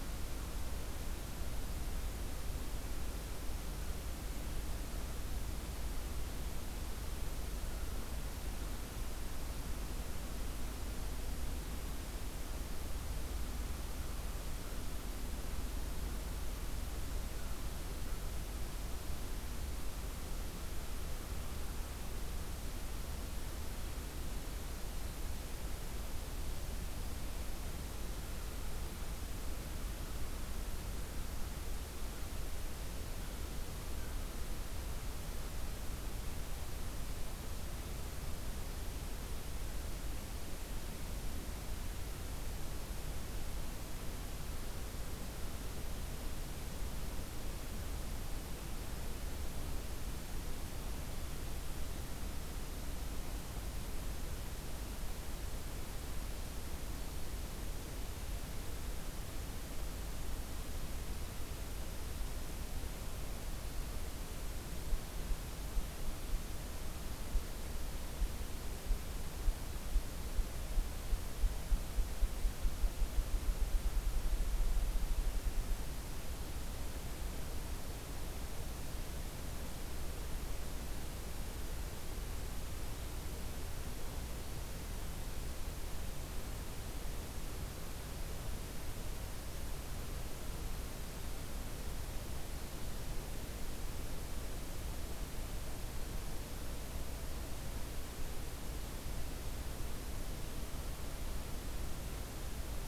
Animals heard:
forest ambience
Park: Acadia National Park